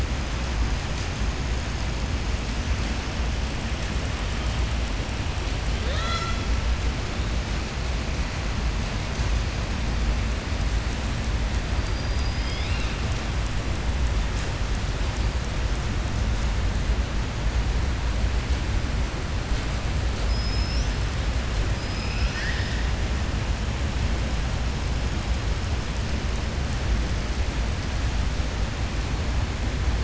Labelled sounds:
11.8	13.0	killer whale, southern resident, 2.1 to 5.3 kHz
20.2	20.9	killer whale, southern resident, 4.4 to 6.3 kHz
21.7	22.8	killer whale, southern resident, 1.5 to 5.9 kHz

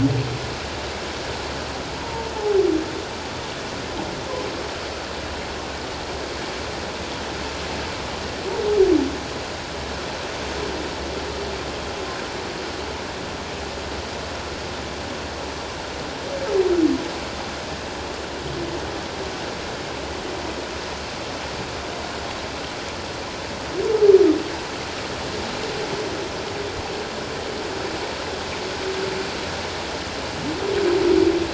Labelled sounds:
2.0	2.6	humpback whale, 0.78 to 1.0 kHz

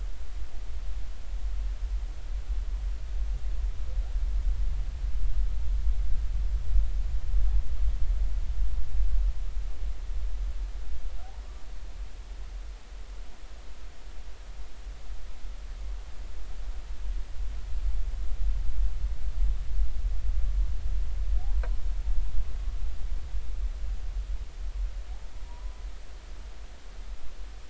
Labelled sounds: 25.4	25.8	humpback whale, 0.90 to 1.0 kHz

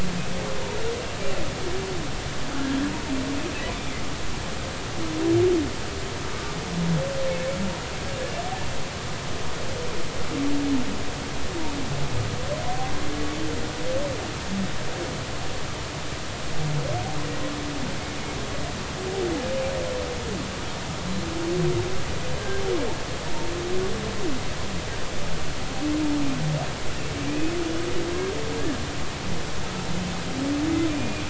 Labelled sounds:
6.3	6.6	humpback whale, 1.1 to 1.3 kHz
28.1	28.5	humpback whale, 1.5 to 2.6 kHz
30.9	31.2	humpback whale, 2.4 to 2.5 kHz

